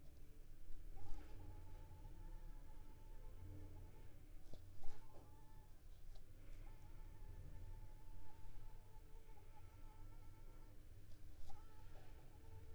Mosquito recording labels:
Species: Anopheles arabiensis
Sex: female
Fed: unfed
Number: one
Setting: cup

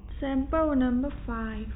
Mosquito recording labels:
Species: no mosquito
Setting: cup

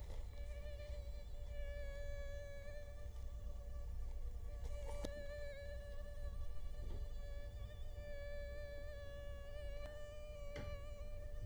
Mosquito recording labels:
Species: Culex quinquefasciatus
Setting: cup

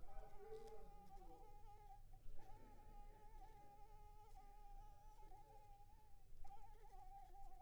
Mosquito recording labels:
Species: Anopheles arabiensis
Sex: female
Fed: unfed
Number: one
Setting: cup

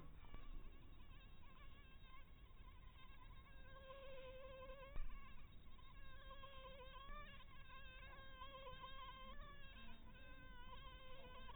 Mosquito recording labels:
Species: Anopheles dirus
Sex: female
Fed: blood-fed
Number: one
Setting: cup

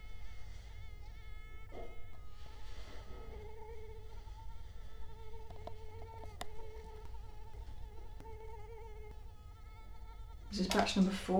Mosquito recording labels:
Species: Culex quinquefasciatus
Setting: cup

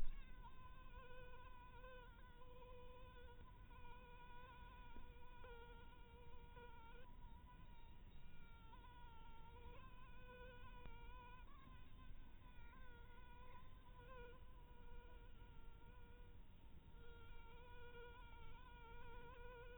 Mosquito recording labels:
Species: mosquito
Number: one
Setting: cup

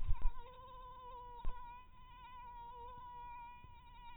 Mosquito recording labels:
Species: mosquito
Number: one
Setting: cup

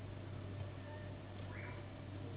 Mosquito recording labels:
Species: Anopheles gambiae s.s.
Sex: female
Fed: unfed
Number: one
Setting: insect culture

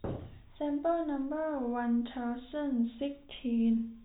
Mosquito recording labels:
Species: no mosquito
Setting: cup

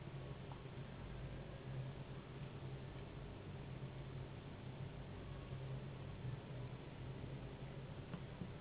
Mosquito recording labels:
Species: Anopheles gambiae s.s.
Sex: female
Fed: unfed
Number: one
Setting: insect culture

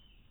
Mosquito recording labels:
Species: no mosquito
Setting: cup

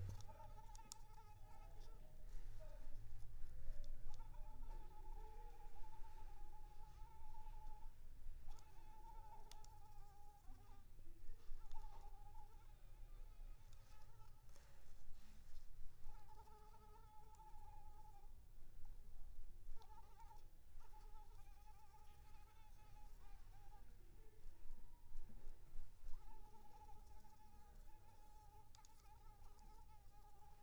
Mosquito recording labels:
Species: Anopheles arabiensis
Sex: female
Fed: unfed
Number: one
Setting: cup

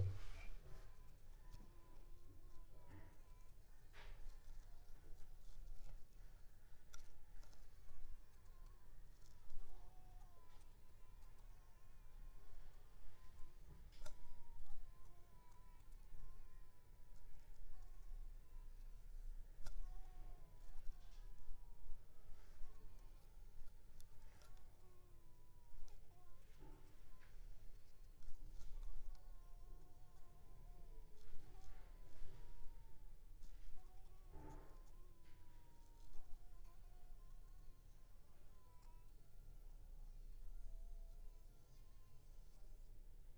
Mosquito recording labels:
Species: Anopheles squamosus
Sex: female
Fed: unfed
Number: one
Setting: cup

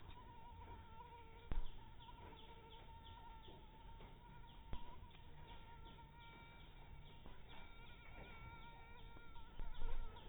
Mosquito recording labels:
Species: mosquito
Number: one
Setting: cup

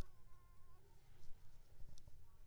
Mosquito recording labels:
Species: Anopheles squamosus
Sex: female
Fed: unfed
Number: one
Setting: cup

